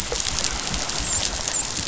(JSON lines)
{"label": "biophony, dolphin", "recorder": "SoundTrap 500"}